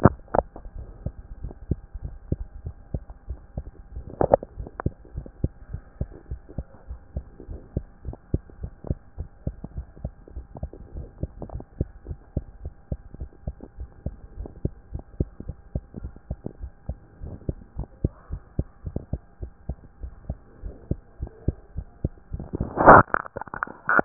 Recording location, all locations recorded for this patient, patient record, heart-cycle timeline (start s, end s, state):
mitral valve (MV)
aortic valve (AV)+pulmonary valve (PV)+tricuspid valve (TV)+mitral valve (MV)
#Age: Child
#Sex: Female
#Height: 142.0 cm
#Weight: 39.0 kg
#Pregnancy status: False
#Murmur: Absent
#Murmur locations: nan
#Most audible location: nan
#Systolic murmur timing: nan
#Systolic murmur shape: nan
#Systolic murmur grading: nan
#Systolic murmur pitch: nan
#Systolic murmur quality: nan
#Diastolic murmur timing: nan
#Diastolic murmur shape: nan
#Diastolic murmur grading: nan
#Diastolic murmur pitch: nan
#Diastolic murmur quality: nan
#Outcome: Normal
#Campaign: 2014 screening campaign
0.00	5.14	unannotated
5.14	5.26	S1
5.26	5.42	systole
5.42	5.52	S2
5.52	5.72	diastole
5.72	5.82	S1
5.82	6.00	systole
6.00	6.10	S2
6.10	6.30	diastole
6.30	6.40	S1
6.40	6.56	systole
6.56	6.66	S2
6.66	6.88	diastole
6.88	7.00	S1
7.00	7.14	systole
7.14	7.24	S2
7.24	7.48	diastole
7.48	7.60	S1
7.60	7.74	systole
7.74	7.84	S2
7.84	8.06	diastole
8.06	8.16	S1
8.16	8.32	systole
8.32	8.42	S2
8.42	8.62	diastole
8.62	8.72	S1
8.72	8.88	systole
8.88	8.98	S2
8.98	9.18	diastole
9.18	9.28	S1
9.28	9.46	systole
9.46	9.54	S2
9.54	9.76	diastole
9.76	9.86	S1
9.86	10.02	systole
10.02	10.12	S2
10.12	10.34	diastole
10.34	10.46	S1
10.46	10.62	systole
10.62	10.70	S2
10.70	10.94	diastole
10.94	11.06	S1
11.06	11.22	systole
11.22	11.30	S2
11.30	11.52	diastole
11.52	11.64	S1
11.64	11.78	systole
11.78	11.88	S2
11.88	12.08	diastole
12.08	12.18	S1
12.18	12.34	systole
12.34	12.44	S2
12.44	12.62	diastole
12.62	12.74	S1
12.74	12.90	systole
12.90	13.00	S2
13.00	13.20	diastole
13.20	13.30	S1
13.30	13.46	systole
13.46	13.56	S2
13.56	13.78	diastole
13.78	13.90	S1
13.90	14.06	systole
14.06	14.16	S2
14.16	14.38	diastole
14.38	14.50	S1
14.50	14.64	systole
14.64	14.72	S2
14.72	14.92	diastole
14.92	15.04	S1
15.04	15.18	systole
15.18	15.30	S2
15.30	15.48	diastole
15.48	15.58	S1
15.58	15.74	systole
15.74	15.82	S2
15.82	16.02	diastole
16.02	16.12	S1
16.12	16.30	systole
16.30	16.38	S2
16.38	16.60	diastole
16.60	16.72	S1
16.72	16.88	systole
16.88	16.98	S2
16.98	17.22	diastole
17.22	17.36	S1
17.36	17.48	systole
17.48	17.56	S2
17.56	17.76	diastole
17.76	17.88	S1
17.88	18.02	systole
18.02	18.12	S2
18.12	18.30	diastole
18.30	18.42	S1
18.42	18.58	systole
18.58	18.68	S2
18.68	18.86	diastole
18.86	19.00	S1
19.00	19.12	systole
19.12	19.20	S2
19.20	19.42	diastole
19.42	19.52	S1
19.52	19.68	systole
19.68	19.78	S2
19.78	20.02	diastole
20.02	20.12	S1
20.12	20.28	systole
20.28	20.38	S2
20.38	20.64	diastole
20.64	20.74	S1
20.74	20.90	systole
20.90	21.00	S2
21.00	21.20	diastole
21.20	21.32	S1
21.32	21.46	systole
21.46	21.56	S2
21.56	21.76	diastole
21.76	21.86	S1
21.86	22.02	systole
22.02	22.12	S2
22.12	22.32	diastole
22.32	24.05	unannotated